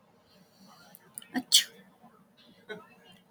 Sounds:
Sneeze